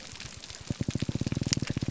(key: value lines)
label: biophony, grouper groan
recorder: SoundTrap 300